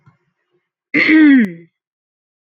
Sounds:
Throat clearing